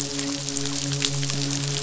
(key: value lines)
label: biophony, midshipman
recorder: SoundTrap 500